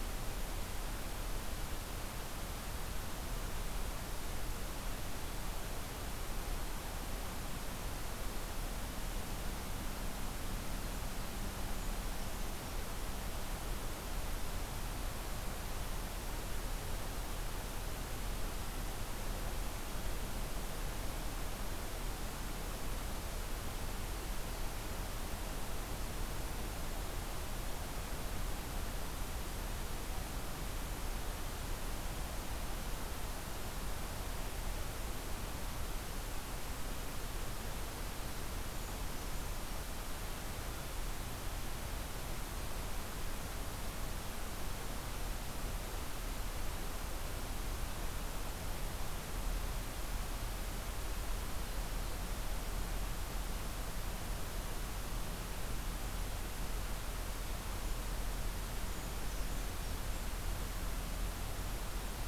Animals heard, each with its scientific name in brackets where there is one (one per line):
Brown Creeper (Certhia americana)